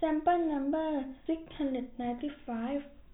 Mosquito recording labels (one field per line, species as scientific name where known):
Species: no mosquito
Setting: cup